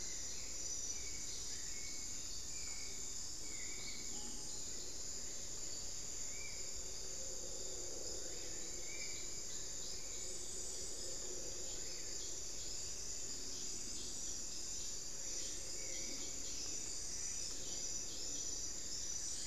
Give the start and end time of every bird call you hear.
0.0s-1.0s: White-rumped Sirystes (Sirystes albocinereus)
0.0s-19.5s: Hauxwell's Thrush (Turdus hauxwelli)
4.1s-4.4s: Screaming Piha (Lipaugus vociferans)
6.2s-9.6s: Spot-winged Antshrike (Pygiptila stellaris)
15.6s-19.5s: Spot-winged Antshrike (Pygiptila stellaris)
17.3s-19.5s: Buff-throated Woodcreeper (Xiphorhynchus guttatus)

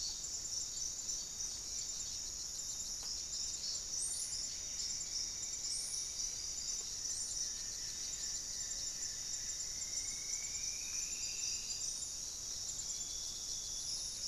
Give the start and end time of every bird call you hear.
0.0s-14.3s: Buff-breasted Wren (Cantorchilus leucotis)
3.8s-14.3s: Paradise Tanager (Tangara chilensis)
4.0s-6.5s: Plumbeous Antbird (Myrmelastes hyperythrus)
6.8s-9.7s: Goeldi's Antbird (Akletos goeldii)
9.5s-11.9s: Striped Woodcreeper (Xiphorhynchus obsoletus)

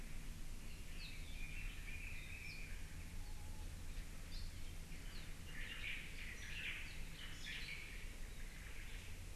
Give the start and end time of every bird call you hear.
0.6s-2.6s: Apapane (Himatione sanguinea)
0.7s-2.8s: Red-billed Leiothrix (Leiothrix lutea)
4.3s-5.3s: Apapane (Himatione sanguinea)
5.5s-9.2s: Omao (Myadestes obscurus)
6.3s-6.6s: Apapane (Himatione sanguinea)

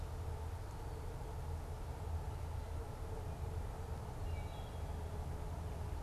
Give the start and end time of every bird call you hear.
4.2s-4.8s: Wood Thrush (Hylocichla mustelina)

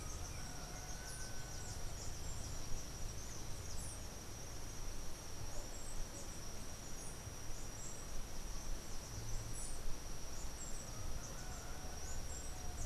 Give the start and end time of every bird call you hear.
0.0s-1.2s: Yellow-backed Oriole (Icterus chrysater)
0.0s-12.9s: Andean Emerald (Uranomitra franciae)

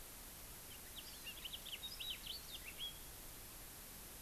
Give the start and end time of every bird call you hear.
0.6s-3.1s: House Finch (Haemorhous mexicanus)
0.9s-1.4s: Hawaii Amakihi (Chlorodrepanis virens)

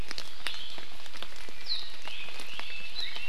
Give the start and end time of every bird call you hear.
2.0s-3.3s: Red-billed Leiothrix (Leiothrix lutea)

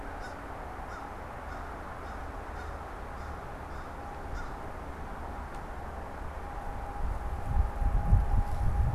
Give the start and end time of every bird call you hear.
0.0s-4.6s: American Crow (Corvus brachyrhynchos)

